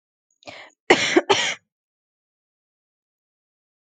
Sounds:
Cough